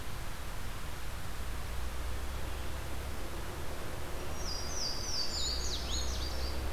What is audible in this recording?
Louisiana Waterthrush